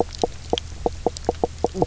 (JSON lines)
{"label": "biophony, knock croak", "recorder": "SoundTrap 300"}